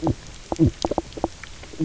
{"label": "biophony, knock croak", "recorder": "SoundTrap 300"}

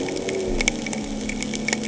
{"label": "anthrophony, boat engine", "recorder": "HydroMoth"}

